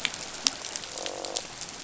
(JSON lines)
{"label": "biophony, croak", "recorder": "SoundTrap 500"}